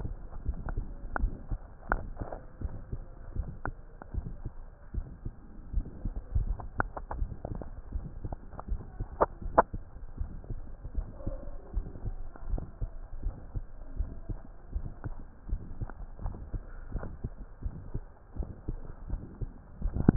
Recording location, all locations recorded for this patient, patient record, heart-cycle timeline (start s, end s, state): mitral valve (MV)
aortic valve (AV)+pulmonary valve (PV)+tricuspid valve (TV)+mitral valve (MV)
#Age: Adolescent
#Sex: Male
#Height: 148.0 cm
#Weight: 35.8 kg
#Pregnancy status: False
#Murmur: Present
#Murmur locations: aortic valve (AV)+mitral valve (MV)+pulmonary valve (PV)+tricuspid valve (TV)
#Most audible location: tricuspid valve (TV)
#Systolic murmur timing: Early-systolic
#Systolic murmur shape: Plateau
#Systolic murmur grading: II/VI
#Systolic murmur pitch: Low
#Systolic murmur quality: Harsh
#Diastolic murmur timing: nan
#Diastolic murmur shape: nan
#Diastolic murmur grading: nan
#Diastolic murmur pitch: nan
#Diastolic murmur quality: nan
#Outcome: Abnormal
#Campaign: 2015 screening campaign
0.00	11.35	unannotated
11.35	11.42	S2
11.42	11.72	diastole
11.72	11.86	S1
11.86	12.01	systole
12.01	12.18	S2
12.18	12.46	diastole
12.46	12.64	S1
12.64	12.77	systole
12.77	12.90	S2
12.90	13.20	diastole
13.20	13.34	S1
13.34	13.52	systole
13.52	13.66	S2
13.66	13.94	diastole
13.94	14.10	S1
14.10	14.25	systole
14.25	14.40	S2
14.40	14.69	diastole
14.69	14.89	S1
14.89	15.02	systole
15.02	15.18	S2
15.18	15.46	diastole
15.46	15.62	S1
15.62	15.77	systole
15.77	15.90	S2
15.90	16.17	diastole
16.17	16.36	S1
16.36	16.49	systole
16.49	16.62	S2
16.62	16.88	diastole
16.88	17.04	S1
17.04	17.20	systole
17.20	17.32	S2
17.32	17.59	diastole
17.59	17.76	S1
17.76	17.90	systole
17.90	18.04	S2
18.04	18.32	diastole
18.32	18.50	S1
18.50	18.64	systole
18.64	18.80	S2
18.80	19.05	diastole
19.05	19.22	S1
19.22	19.38	systole
19.38	19.50	S2
19.50	19.57	diastole
19.57	20.16	unannotated